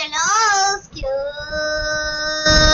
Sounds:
Sniff